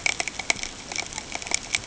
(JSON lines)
{"label": "ambient", "recorder": "HydroMoth"}